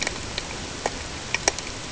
{"label": "ambient", "recorder": "HydroMoth"}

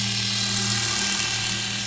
{"label": "anthrophony, boat engine", "recorder": "SoundTrap 500"}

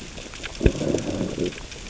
{"label": "biophony, growl", "recorder": "SoundTrap 600 or HydroMoth"}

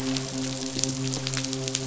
{"label": "biophony, midshipman", "recorder": "SoundTrap 500"}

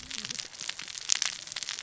{"label": "biophony, cascading saw", "recorder": "SoundTrap 600 or HydroMoth"}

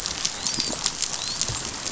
{"label": "biophony, dolphin", "recorder": "SoundTrap 500"}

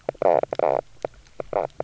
{"label": "biophony, knock croak", "recorder": "SoundTrap 300"}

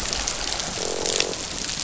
{"label": "biophony, croak", "recorder": "SoundTrap 500"}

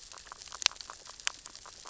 {"label": "biophony, grazing", "recorder": "SoundTrap 600 or HydroMoth"}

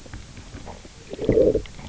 {"label": "biophony, low growl", "recorder": "SoundTrap 300"}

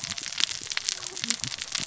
{"label": "biophony, cascading saw", "recorder": "SoundTrap 600 or HydroMoth"}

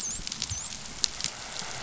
{"label": "biophony, dolphin", "recorder": "SoundTrap 500"}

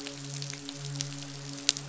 {"label": "biophony, midshipman", "recorder": "SoundTrap 500"}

